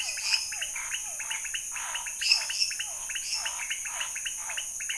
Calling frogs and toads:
menwig frog (Physalaemus albonotatus), lesser tree frog (Dendropsophus minutus), Physalaemus cuvieri, Scinax fuscovarius, pointedbelly frog (Leptodactylus podicipinus)
11pm

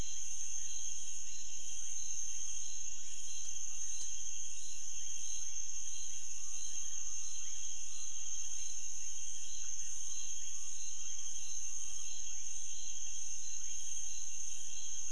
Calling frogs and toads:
rufous frog (Leptodactylus fuscus)
midnight

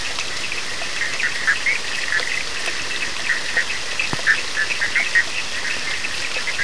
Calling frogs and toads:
Bischoff's tree frog (Boana bischoffi), Cochran's lime tree frog (Sphaenorhynchus surdus)
~1am

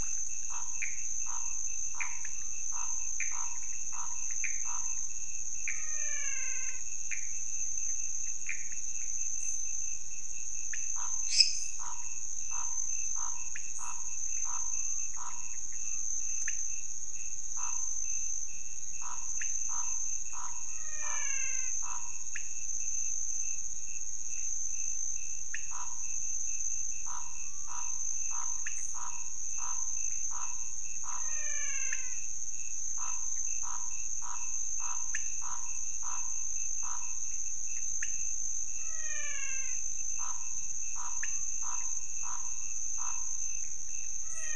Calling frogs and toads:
Scinax fuscovarius, Pithecopus azureus, pointedbelly frog (Leptodactylus podicipinus), menwig frog (Physalaemus albonotatus), lesser tree frog (Dendropsophus minutus)
4am

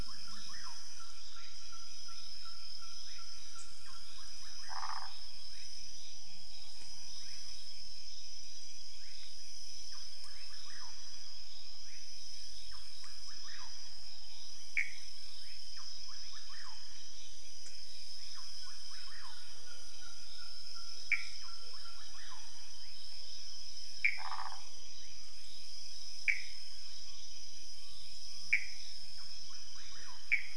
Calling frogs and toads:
rufous frog (Leptodactylus fuscus), waxy monkey tree frog (Phyllomedusa sauvagii), Pithecopus azureus
12:30am

